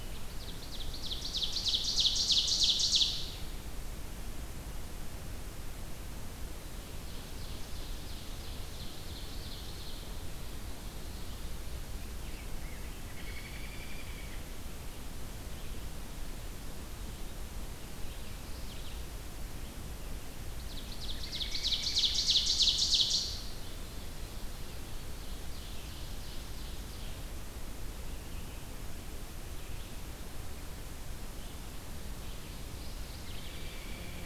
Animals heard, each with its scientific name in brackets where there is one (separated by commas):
Mourning Warbler (Geothlypis philadelphia), American Robin (Turdus migratorius), Ovenbird (Seiurus aurocapilla)